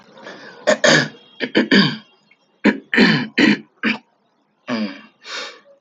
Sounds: Throat clearing